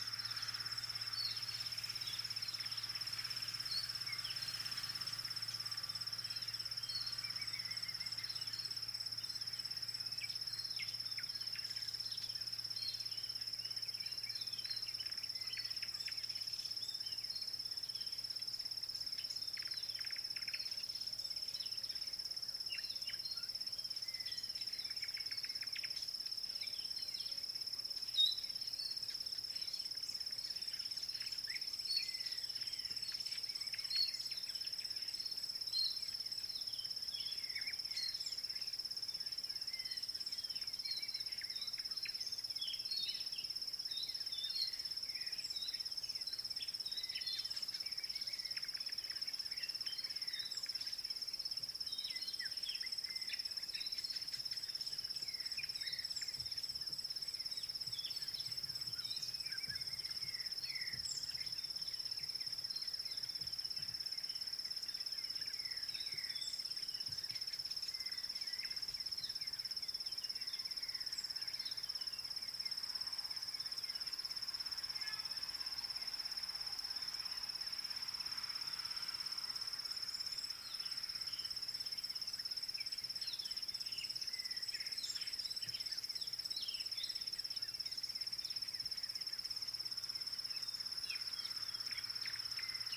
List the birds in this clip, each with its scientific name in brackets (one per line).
Yellow-breasted Apalis (Apalis flavida)